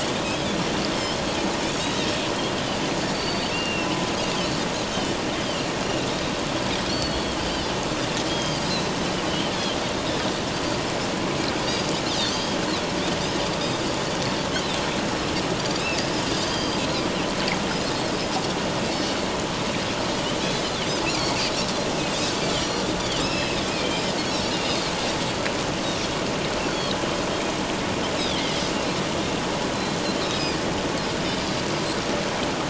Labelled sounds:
0.9	1.2	Pacific white-sided dolphin, 3.0 to 3.3 kHz
1.8	2.1	Pacific white-sided dolphin, 3.6 to 3.9 kHz
3.1	3.9	Pacific white-sided dolphin, 2.6 to 4.7 kHz
4.3	4.6	Pacific white-sided dolphin, 4.4 to 4.8 kHz
6.9	7.7	Pacific white-sided dolphin, 2.9 to 4.5 kHz
8.3	8.6	Pacific white-sided dolphin, 3.0 to 5.0 kHz
9.3	9.8	Pacific white-sided dolphin, 2.8 to 3.5 kHz
11.6	12.6	Pacific white-sided dolphin, 3.1 to 6.6 kHz
16.4	16.8	Pacific white-sided dolphin, 3.1 to 4.9 kHz
20.4	21.4	Pacific white-sided dolphin, 3.7 to 5.8 kHz
22.6	24.1	Pacific white-sided dolphin, 2.3 to 5.8 kHz
24.5	24.8	Pacific white-sided dolphin, 2.7 to 3.0 kHz
26.6	26.9	Pacific white-sided dolphin, 4.2 to 4.6 kHz
28.2	28.4	Pacific white-sided dolphin, 3.1 to 4.1 kHz
30.2	30.6	Pacific white-sided dolphin, 4.7 to 7.6 kHz

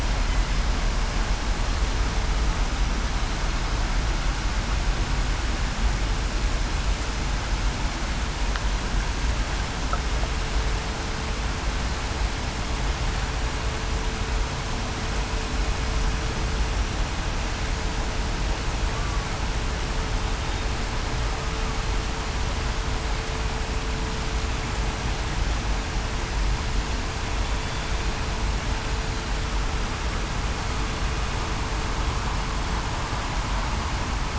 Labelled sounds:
18.9	19.3	killer whale, southern resident, 1.1 to 1.2 kHz

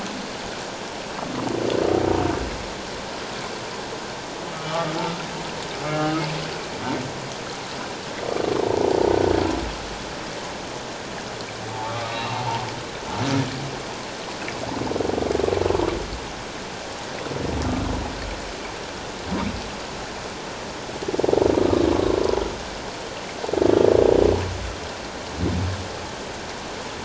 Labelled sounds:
4.5	4.9	humpback whale, 1.1 to 1.4 kHz
6.0	6.2	humpback whale, 1.2 to 1.3 kHz
11.8	12.4	humpback whale, 1.1 to 2.8 kHz

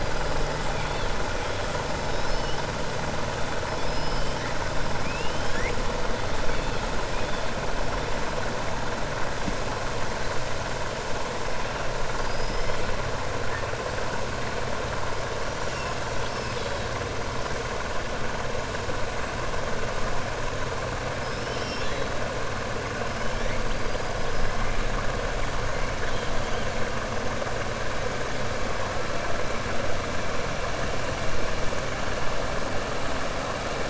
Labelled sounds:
3.7	4.4	killer whale, 4.5 to 5.5 kHz
4.9	5.8	killer whale, 1.6 to 3.8 kHz
12.2	12.7	killer whale, 4.7 to 5.3 kHz

